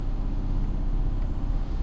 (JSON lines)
{"label": "anthrophony, boat engine", "recorder": "SoundTrap 300"}